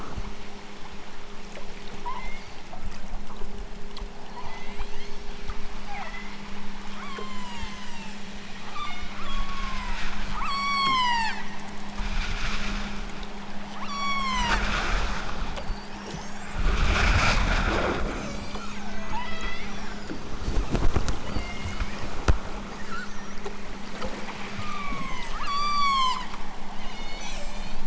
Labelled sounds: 2.0	2.5	killer whale, southern Alaska resident, 0.55 to 3.9 kHz
4.4	5.3	killer whale, southern Alaska resident, 0.51 to 7.2 kHz
5.8	6.4	killer whale, southern Alaska resident, 0.55 to 3.8 kHz
7.0	8.3	killer whale, southern Alaska resident, 0.51 to 8.0 kHz
8.6	11.5	killer whale, southern Alaska resident, 0.46 to 8.0 kHz
13.7	14.6	killer whale, southern Alaska resident, 0.23 to 8.0 kHz
15.5	16.7	killer whale, southern Alaska resident, 2.2 to 8.0 kHz
18.1	19.7	killer whale, southern Alaska resident, 0.32 to 8.0 kHz
21.3	22.0	killer whale, southern Alaska resident, 1.8 to 3.4 kHz
24.5	26.3	killer whale, southern Alaska resident, 0.64 to 8.0 kHz
26.7	27.8	killer whale, southern Alaska resident, 1.6 to 8.0 kHz

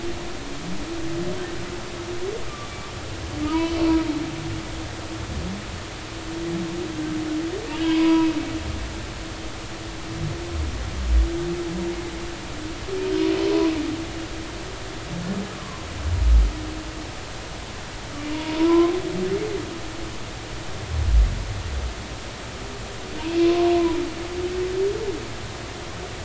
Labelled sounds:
3.5	3.8	humpback whale, 2.8 to 3.1 kHz
7.6	8.3	humpback whale, 0.90 to 5.0 kHz
16.6	16.9	humpback whale, 0.96 to 1.2 kHz
18.3	18.9	humpback whale, 0.90 to 1.1 kHz
23.4	23.7	humpback whale, 0.90 to 1.2 kHz

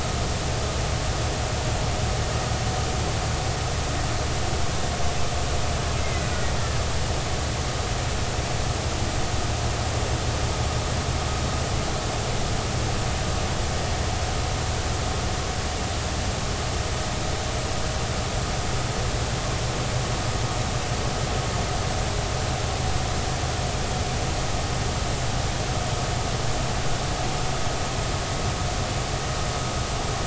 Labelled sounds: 6.0	6.3	killer whale, Bigg's (transient), 2.0 to 2.2 kHz

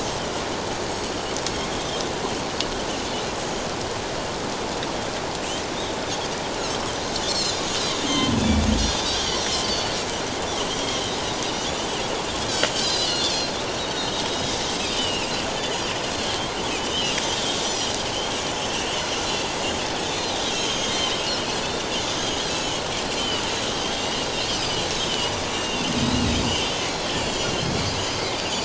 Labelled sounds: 0.9	1.2	Pacific white-sided dolphin, 4.3 to 6.8 kHz
7.3	7.5	Pacific white-sided dolphin, 3.9 to 5.5 kHz
8.1	8.3	Pacific white-sided dolphin, 1.0 to 3.4 kHz
9.3	10.0	Pacific white-sided dolphin, 4.4 to 5.9 kHz
10.6	11.0	Pacific white-sided dolphin, 2.8 to 3.3 kHz
12.7	13.5	Pacific white-sided dolphin, 2.8 to 5.2 kHz
14.3	14.6	Pacific white-sided dolphin, 3.5 to 3.9 kHz
14.8	15.3	Pacific white-sided dolphin, 2.4 to 5.0 kHz
16.2	17.2	Pacific white-sided dolphin, 2.5 to 4.1 kHz
17.6	17.9	Pacific white-sided dolphin, 5.7 to 6.0 kHz
18.5	19.0	Pacific white-sided dolphin, 2.6 to 5.4 kHz
19.3	19.6	Pacific white-sided dolphin, 4.6 to 4.7 kHz
20.1	22.7	Pacific white-sided dolphin, 2.8 to 6.6 kHz
23.2	24.3	Pacific white-sided dolphin, 2.7 to 3.2 kHz
24.9	25.9	Pacific white-sided dolphin, 2.6 to 4.0 kHz
26.5	28.3	Pacific white-sided dolphin, 2.7 to 7.5 kHz

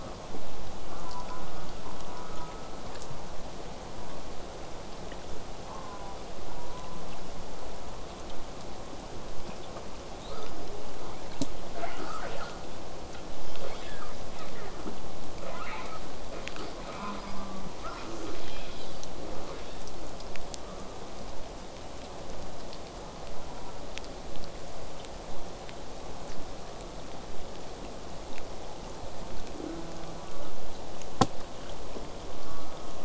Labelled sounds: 0.9	2.8	killer whale, southern resident, J pod, call S04, 0.80 to 1.6 kHz
5.7	7.2	killer whale, southern resident, J pod, call S04, 0.49 to 1.5 kHz
10.2	11.4	killer whale, southern resident, J pod, 0.23 to 5.2 kHz
13.5	14.3	killer whale, southern resident, 0.23 to 5.7 kHz
14.3	14.9	killer whale, southern resident, J pod, 0.19 to 4.0 kHz
15.4	16.0	killer whale, southern resident, J pod, call S37i, 0.27 to 5.1 kHz
16.3	17.5	killer whale, southern resident, J pod, 0.12 to 5.0 kHz
16.9	17.7	killer whale, southern resident, J pod, call S04, 0.36 to 1.6 kHz
17.8	19.9	killer whale, southern resident, J pod, 0.12 to 8.0 kHz
23.0	23.9	killer whale, southern resident, J pod, call S04, 0.66 to 1.5 kHz
24.3	29.3	vessel noise, 0 to 8.0 kHz
29.5	30.6	killer whale, southern resident, J pod, call S04, 0.15 to 1.7 kHz
32.4	33.0	killer whale, southern resident, J pod, call S04, 0.81 to 1.6 kHz

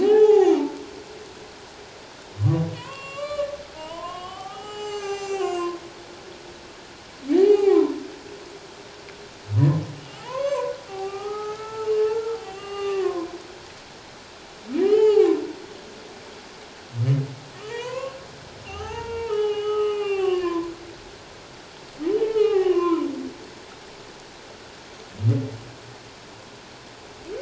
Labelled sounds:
0.0	0.7	humpback whale, 0.78 to 7.1 kHz
2.7	5.8	humpback whale, 0.78 to 7.8 kHz
7.3	8.0	humpback whale, 0.78 to 3.0 kHz
9.6	13.3	humpback whale, 0.78 to 2.9 kHz
14.8	15.4	humpback whale, 0.78 to 3.1 kHz
17.6	20.7	humpback whale, 0.78 to 3.4 kHz
22.2	23.1	humpback whale, 0.78 to 3.1 kHz

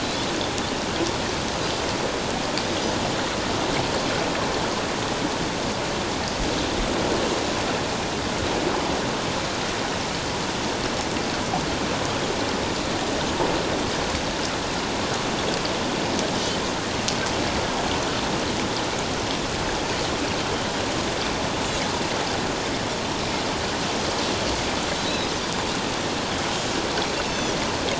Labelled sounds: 16.3	16.6	Pacific white-sided dolphin, 2.9 to 3.1 kHz
25.0	25.3	Pacific white-sided dolphin, 3.7 to 4.1 kHz
27.3	27.5	Pacific white-sided dolphin, 5.7 to 6.3 kHz

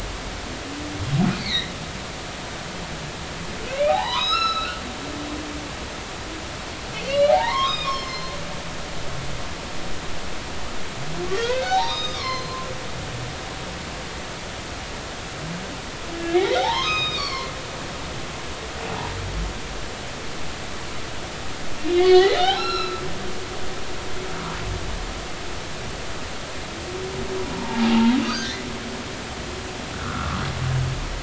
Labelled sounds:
1.3	1.7	humpback whale, 1.8 to 4.6 kHz
3.7	4.8	humpback whale, 0.80 to 5.6 kHz
7.1	8.3	humpback whale, 0.80 to 5.5 kHz
11.3	12.7	humpback whale, 0.80 to 5.5 kHz
16.4	17.5	humpback whale, 0.80 to 6.5 kHz
21.8	23.2	humpback whale, 0.80 to 5.6 kHz
27.5	28.5	humpback whale, 0.80 to 4.8 kHz
29.9	30.4	humpback whale, 1.0 to 1.5 kHz

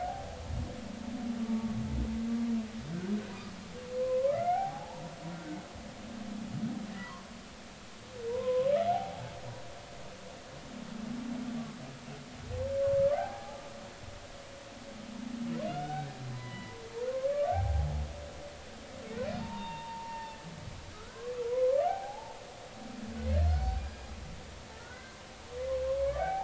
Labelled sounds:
0.0	0.4	humpback whale, 0.80 to 0.96 kHz
1.4	1.8	humpback whale, 1.1 to 1.2 kHz
3.9	5.0	humpback whale, 0.80 to 2.4 kHz
7.0	7.3	humpback whale, 0.93 to 1.2 kHz
8.3	9.3	humpback whale, 0.80 to 1.1 kHz
13.1	13.6	humpback whale, 0.80 to 0.93 kHz
15.7	18.0	humpback whale, 0.80 to 3.9 kHz
19.4	22.4	humpback whale, 0.80 to 3.7 kHz
23.3	24.1	humpback whale, 1.5 to 4.6 kHz
24.8	25.2	humpback whale, 1.3 to 1.6 kHz
26.0	26.4	humpback whale, 0.80 to 2.4 kHz

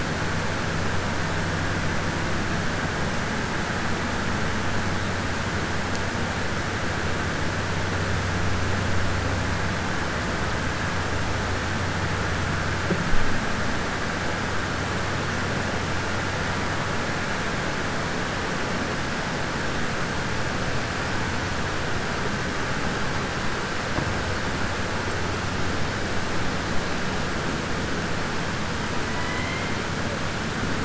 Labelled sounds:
29.1	29.7	killer whale, southern resident, 0.99 to 3.1 kHz

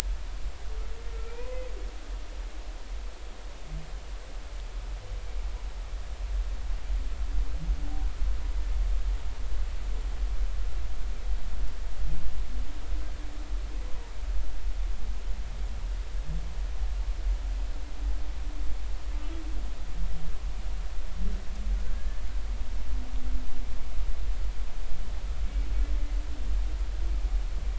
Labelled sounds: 1.3	1.6	humpback whale, 0.90 to 1.1 kHz

